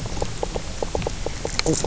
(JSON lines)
{"label": "biophony, knock croak", "recorder": "SoundTrap 300"}